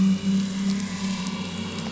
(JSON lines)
{"label": "anthrophony, boat engine", "recorder": "SoundTrap 500"}